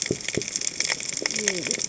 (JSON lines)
{"label": "biophony, cascading saw", "recorder": "HydroMoth"}